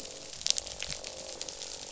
{"label": "biophony, croak", "recorder": "SoundTrap 500"}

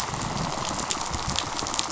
{"label": "biophony, rattle response", "recorder": "SoundTrap 500"}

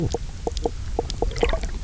{"label": "biophony, knock croak", "recorder": "SoundTrap 300"}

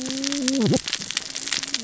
{"label": "biophony, cascading saw", "recorder": "SoundTrap 600 or HydroMoth"}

